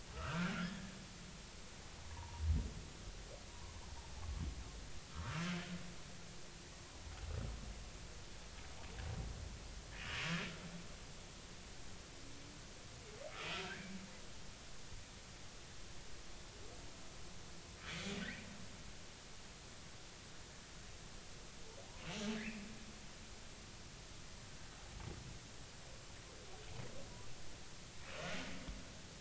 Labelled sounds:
0.1	0.9	humpback whale, 1.1 to 1.8 kHz
2.1	2.4	humpback whale, 0.83 to 1.1 kHz
3.5	3.8	humpback whale, 0.93 to 1.1 kHz
5.1	5.5	humpback whale, 1.1 to 1.6 kHz

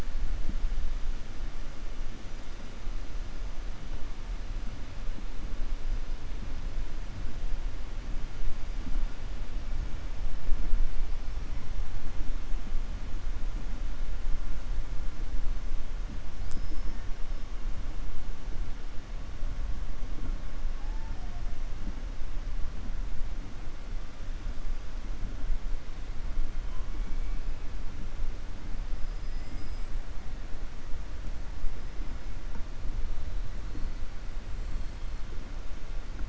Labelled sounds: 29.0	30.0	killer whale, southern resident, 4.8 to 7.9 kHz

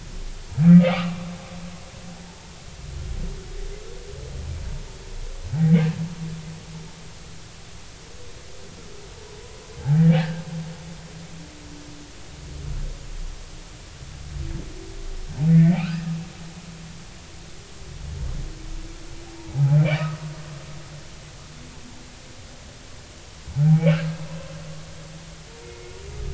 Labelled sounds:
0.7	1.3	humpback whale, 1.0 to 1.4 kHz
9.8	10.4	humpback whale, 0.80 to 1.8 kHz
15.5	16.1	humpback whale, 1.2 to 3.0 kHz
19.4	19.8	humpback whale, 0.80 to 0.99 kHz
25.6	25.9	humpback whale, 2.1 to 2.2 kHz

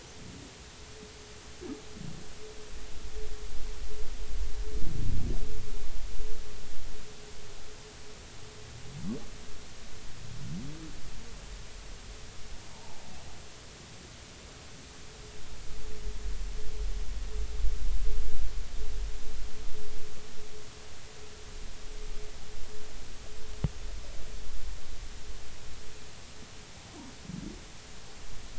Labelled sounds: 12.7	13.0	humpback whale, 0.80 to 0.99 kHz

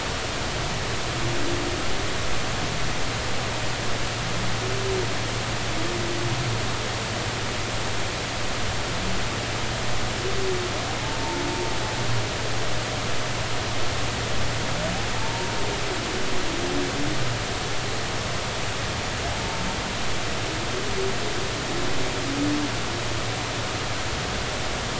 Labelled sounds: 15.2	15.6	humpback whale, 0.86 to 0.96 kHz

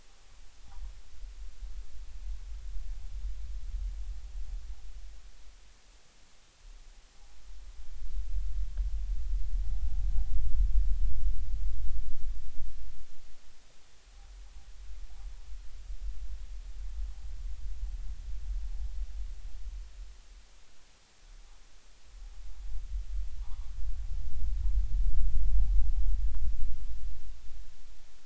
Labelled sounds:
23.4	23.7	noise likely from the mooring, 0.80 to 1.3 kHz

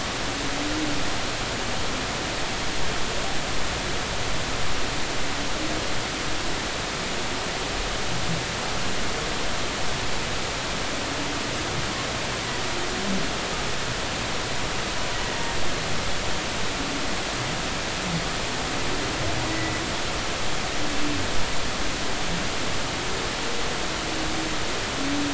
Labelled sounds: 15.1	15.4	humpback whale, 1.9 to 2.0 kHz
19.5	19.7	humpback whale, 1.9 to 2.0 kHz

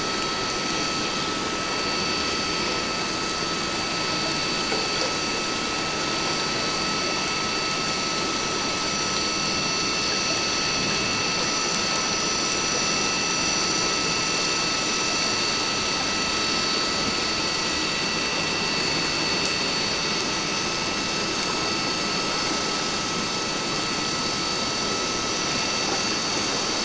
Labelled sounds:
0.8	1.0	vessel noise, 4.5 to 4.6 kHz
20.1	20.5	vessel noise, 6.3 to 6.6 kHz

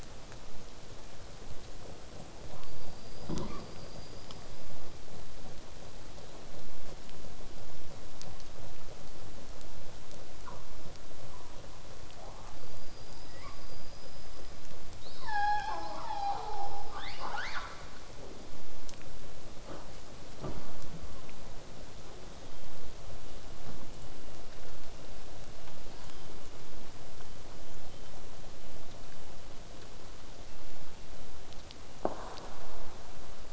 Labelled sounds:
2.7	3.6	killer whale, southern resident, L pod, call S19, 0.85 to 5.0 kHz
12.6	13.7	killer whale, southern resident, L pod, call S19, 0.93 to 5.2 kHz
16.9	17.9	killer whale, southern resident, 0.31 to 7.7 kHz

